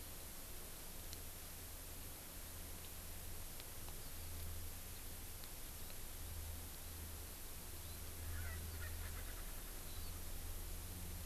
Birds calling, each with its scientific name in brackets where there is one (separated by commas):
Erckel's Francolin (Pternistis erckelii)